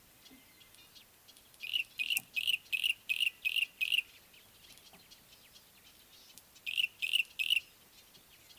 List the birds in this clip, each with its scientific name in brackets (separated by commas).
Yellow-breasted Apalis (Apalis flavida)